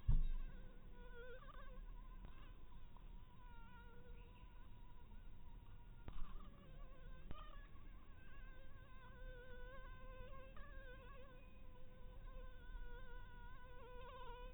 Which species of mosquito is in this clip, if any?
mosquito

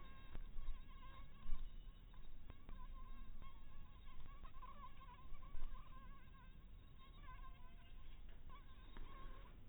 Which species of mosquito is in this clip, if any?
mosquito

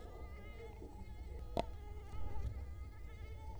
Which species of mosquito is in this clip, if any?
Culex quinquefasciatus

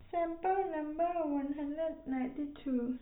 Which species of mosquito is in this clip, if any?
no mosquito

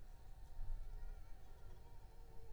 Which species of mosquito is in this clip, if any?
Anopheles arabiensis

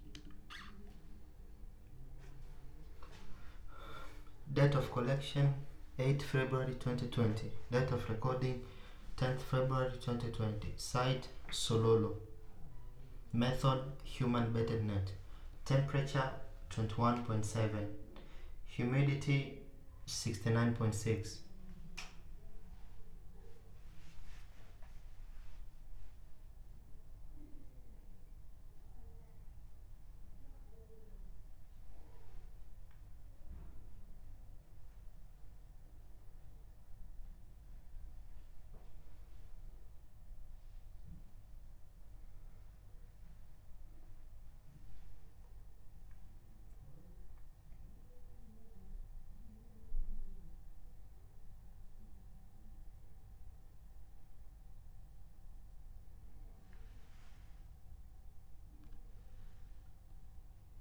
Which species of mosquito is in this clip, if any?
no mosquito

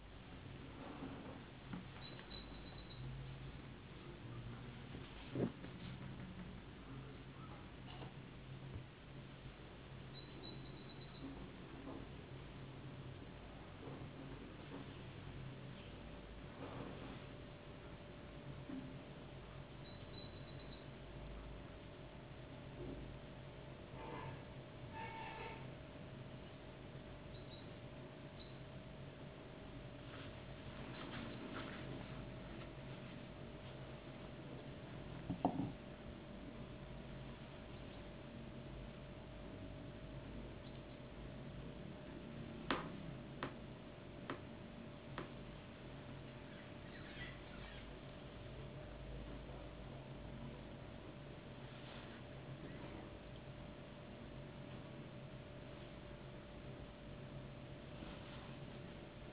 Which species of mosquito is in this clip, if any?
no mosquito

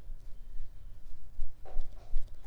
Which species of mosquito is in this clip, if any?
Mansonia uniformis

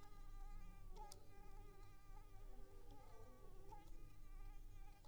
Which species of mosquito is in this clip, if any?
Anopheles coustani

